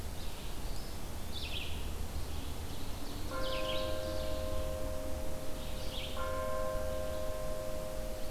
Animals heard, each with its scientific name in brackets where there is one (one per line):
Red-eyed Vireo (Vireo olivaceus)
Ovenbird (Seiurus aurocapilla)